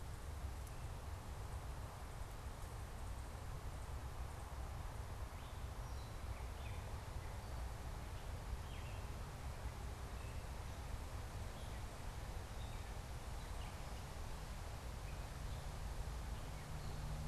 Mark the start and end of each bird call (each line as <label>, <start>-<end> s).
Gray Catbird (Dumetella carolinensis), 5.4-17.2 s